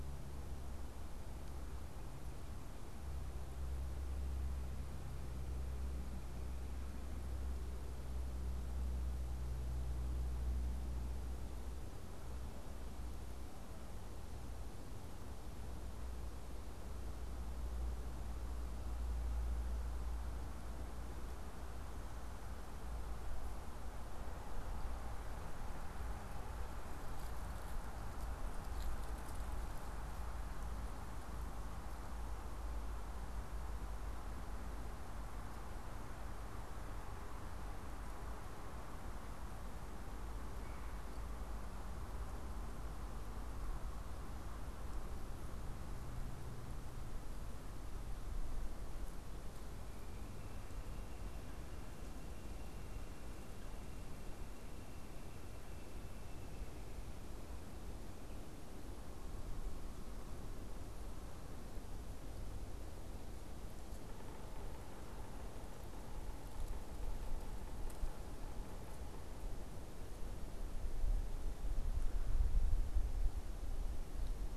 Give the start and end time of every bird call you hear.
40.5s-41.0s: unidentified bird
49.9s-56.9s: unidentified bird
64.0s-69.4s: Yellow-bellied Sapsucker (Sphyrapicus varius)

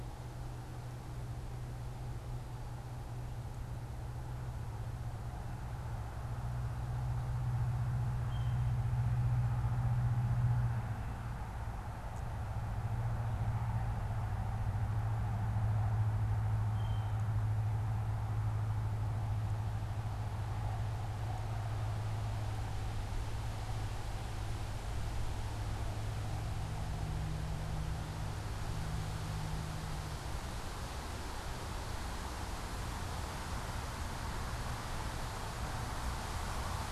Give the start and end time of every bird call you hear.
8.1s-8.8s: unidentified bird
16.5s-17.1s: Blue Jay (Cyanocitta cristata)

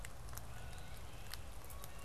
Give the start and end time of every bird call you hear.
0.0s-2.0s: Blue Jay (Cyanocitta cristata)
0.0s-2.0s: Canada Goose (Branta canadensis)
0.8s-2.0s: Great Crested Flycatcher (Myiarchus crinitus)

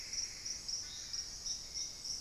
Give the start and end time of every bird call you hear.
0.0s-0.9s: Plumbeous Antbird (Myrmelastes hyperythrus)
0.0s-2.2s: Hauxwell's Thrush (Turdus hauxwelli)
0.0s-2.2s: Long-billed Woodcreeper (Nasica longirostris)

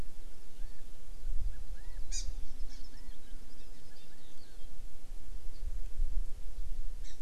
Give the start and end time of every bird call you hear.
0.6s-0.8s: Chinese Hwamei (Garrulax canorus)
1.5s-2.0s: Chinese Hwamei (Garrulax canorus)
2.1s-2.3s: Hawaii Amakihi (Chlorodrepanis virens)
2.7s-2.8s: Hawaii Amakihi (Chlorodrepanis virens)
2.9s-4.6s: Chinese Hwamei (Garrulax canorus)
3.6s-3.7s: Hawaii Amakihi (Chlorodrepanis virens)
4.0s-4.1s: Hawaii Amakihi (Chlorodrepanis virens)
7.0s-7.2s: Hawaii Amakihi (Chlorodrepanis virens)

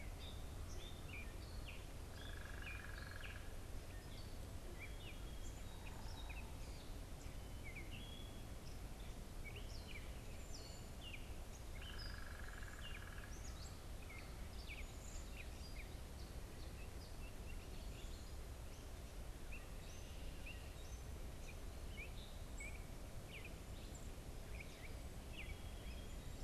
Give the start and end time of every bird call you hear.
0.0s-8.5s: Gray Catbird (Dumetella carolinensis)
2.0s-3.6s: unidentified bird
9.1s-26.4s: Gray Catbird (Dumetella carolinensis)
10.3s-11.1s: Cedar Waxwing (Bombycilla cedrorum)
11.7s-13.4s: unidentified bird
14.8s-15.4s: Cedar Waxwing (Bombycilla cedrorum)

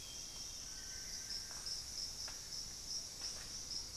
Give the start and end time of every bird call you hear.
0.0s-0.9s: Amazonian Grosbeak (Cyanoloxia rothschildii)
0.4s-1.9s: Little Tinamou (Crypturellus soui)
0.5s-2.0s: Amazonian Barred-Woodcreeper (Dendrocolaptes certhia)

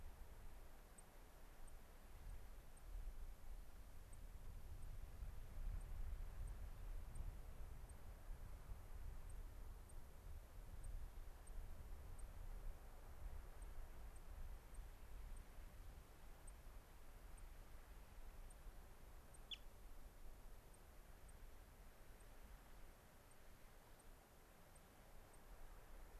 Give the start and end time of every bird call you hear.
1.0s-1.1s: White-crowned Sparrow (Zonotrichia leucophrys)
1.7s-1.8s: White-crowned Sparrow (Zonotrichia leucophrys)
2.3s-2.4s: White-crowned Sparrow (Zonotrichia leucophrys)
2.8s-2.9s: White-crowned Sparrow (Zonotrichia leucophrys)
4.1s-4.2s: White-crowned Sparrow (Zonotrichia leucophrys)
4.8s-4.9s: White-crowned Sparrow (Zonotrichia leucophrys)
5.8s-5.9s: White-crowned Sparrow (Zonotrichia leucophrys)
6.5s-6.6s: White-crowned Sparrow (Zonotrichia leucophrys)
7.1s-7.3s: White-crowned Sparrow (Zonotrichia leucophrys)
7.9s-8.0s: White-crowned Sparrow (Zonotrichia leucophrys)
9.3s-9.4s: White-crowned Sparrow (Zonotrichia leucophrys)
9.9s-10.0s: White-crowned Sparrow (Zonotrichia leucophrys)
10.8s-10.9s: White-crowned Sparrow (Zonotrichia leucophrys)
12.2s-12.3s: White-crowned Sparrow (Zonotrichia leucophrys)
13.6s-13.7s: White-crowned Sparrow (Zonotrichia leucophrys)
14.1s-14.3s: White-crowned Sparrow (Zonotrichia leucophrys)
14.7s-14.8s: White-crowned Sparrow (Zonotrichia leucophrys)
15.4s-15.5s: White-crowned Sparrow (Zonotrichia leucophrys)
16.5s-16.6s: White-crowned Sparrow (Zonotrichia leucophrys)
17.4s-17.5s: White-crowned Sparrow (Zonotrichia leucophrys)
18.5s-18.6s: White-crowned Sparrow (Zonotrichia leucophrys)
19.3s-19.4s: White-crowned Sparrow (Zonotrichia leucophrys)
21.3s-21.4s: White-crowned Sparrow (Zonotrichia leucophrys)
22.2s-22.3s: White-crowned Sparrow (Zonotrichia leucophrys)
23.3s-23.4s: White-crowned Sparrow (Zonotrichia leucophrys)
24.0s-24.1s: White-crowned Sparrow (Zonotrichia leucophrys)
24.7s-24.9s: White-crowned Sparrow (Zonotrichia leucophrys)
25.3s-25.5s: White-crowned Sparrow (Zonotrichia leucophrys)

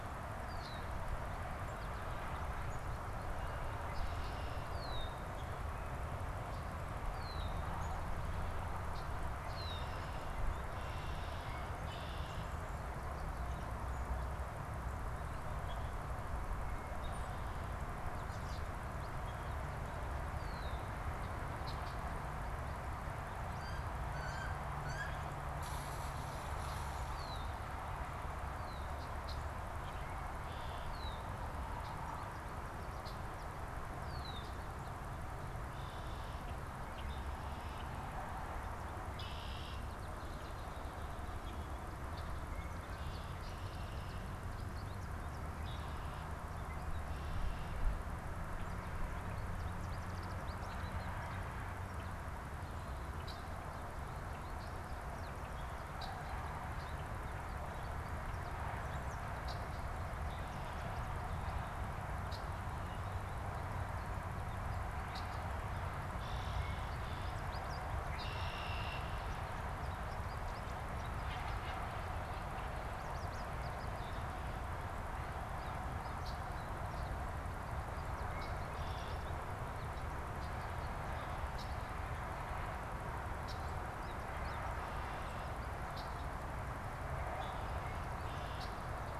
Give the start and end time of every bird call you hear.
0.4s-1.0s: Red-winged Blackbird (Agelaius phoeniceus)
3.2s-5.3s: Red-winged Blackbird (Agelaius phoeniceus)
6.9s-7.7s: Red-winged Blackbird (Agelaius phoeniceus)
9.4s-12.7s: Red-winged Blackbird (Agelaius phoeniceus)
18.0s-18.7s: American Robin (Turdus migratorius)
20.2s-22.1s: Red-winged Blackbird (Agelaius phoeniceus)
23.4s-25.5s: Wood Duck (Aix sponsa)
27.1s-27.6s: Red-winged Blackbird (Agelaius phoeniceus)
28.6s-29.5s: Red-winged Blackbird (Agelaius phoeniceus)
29.8s-31.3s: Red-winged Blackbird (Agelaius phoeniceus)
32.9s-34.7s: Red-winged Blackbird (Agelaius phoeniceus)
35.5s-38.0s: Red-winged Blackbird (Agelaius phoeniceus)
39.0s-39.9s: Red-winged Blackbird (Agelaius phoeniceus)
42.0s-44.4s: Red-winged Blackbird (Agelaius phoeniceus)
43.6s-45.5s: American Goldfinch (Spinus tristis)
45.5s-48.1s: Red-winged Blackbird (Agelaius phoeniceus)
49.0s-51.5s: American Goldfinch (Spinus tristis)
53.1s-53.6s: Red-winged Blackbird (Agelaius phoeniceus)
54.1s-61.6s: American Goldfinch (Spinus tristis)
55.8s-56.3s: Red-winged Blackbird (Agelaius phoeniceus)
59.3s-59.6s: Red-winged Blackbird (Agelaius phoeniceus)
62.2s-62.5s: Red-winged Blackbird (Agelaius phoeniceus)
65.0s-67.5s: Red-winged Blackbird (Agelaius phoeniceus)
67.1s-89.2s: American Goldfinch (Spinus tristis)
68.0s-69.3s: Red-winged Blackbird (Agelaius phoeniceus)
76.2s-76.5s: Red-winged Blackbird (Agelaius phoeniceus)
78.3s-79.2s: Red-winged Blackbird (Agelaius phoeniceus)
81.5s-81.8s: Red-winged Blackbird (Agelaius phoeniceus)
83.4s-83.6s: Red-winged Blackbird (Agelaius phoeniceus)
84.6s-86.2s: Red-winged Blackbird (Agelaius phoeniceus)
87.3s-89.2s: Red-winged Blackbird (Agelaius phoeniceus)

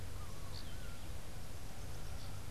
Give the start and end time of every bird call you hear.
0.0s-2.5s: Laughing Falcon (Herpetotheres cachinnans)

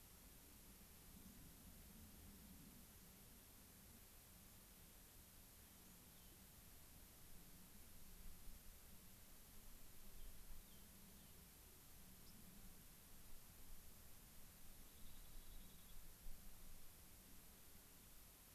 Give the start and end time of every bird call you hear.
6.2s-6.4s: Rock Wren (Salpinctes obsoletus)
10.2s-11.4s: Rock Wren (Salpinctes obsoletus)
14.9s-16.0s: Rock Wren (Salpinctes obsoletus)

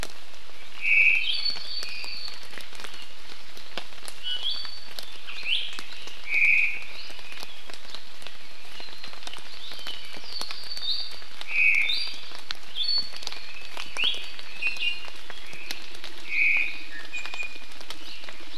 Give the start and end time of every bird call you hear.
0.8s-1.3s: Omao (Myadestes obscurus)
1.2s-1.6s: Iiwi (Drepanis coccinea)
1.6s-2.5s: Apapane (Himatione sanguinea)
4.2s-4.9s: Iiwi (Drepanis coccinea)
5.4s-5.7s: Iiwi (Drepanis coccinea)
6.2s-6.9s: Omao (Myadestes obscurus)
6.9s-7.2s: Iiwi (Drepanis coccinea)
9.8s-10.9s: Apapane (Himatione sanguinea)
10.8s-11.2s: Iiwi (Drepanis coccinea)
11.4s-12.0s: Omao (Myadestes obscurus)
11.8s-12.3s: Iiwi (Drepanis coccinea)
12.7s-13.2s: Iiwi (Drepanis coccinea)
13.9s-14.2s: Iiwi (Drepanis coccinea)
14.6s-15.1s: Iiwi (Drepanis coccinea)
15.4s-15.8s: Omao (Myadestes obscurus)
16.2s-16.9s: Omao (Myadestes obscurus)
16.9s-17.8s: Iiwi (Drepanis coccinea)

